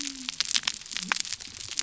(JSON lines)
{"label": "biophony", "recorder": "SoundTrap 300"}